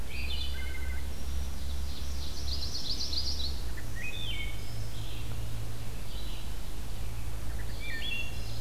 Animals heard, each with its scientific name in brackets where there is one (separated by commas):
Ovenbird (Seiurus aurocapilla), Red-eyed Vireo (Vireo olivaceus), Chestnut-sided Warbler (Setophaga pensylvanica), Wood Thrush (Hylocichla mustelina)